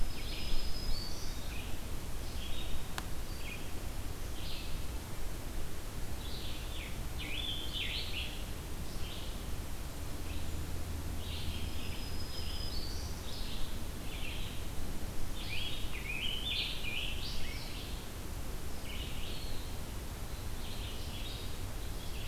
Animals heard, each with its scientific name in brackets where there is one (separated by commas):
Black-throated Green Warbler (Setophaga virens), Scarlet Tanager (Piranga olivacea), Blue-headed Vireo (Vireo solitarius)